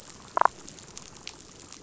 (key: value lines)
label: biophony, damselfish
recorder: SoundTrap 500